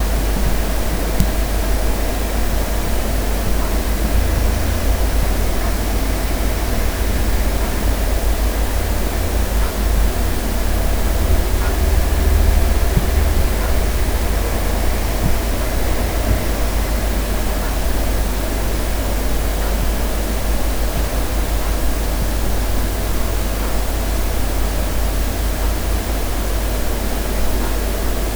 Is anyone clapping?
no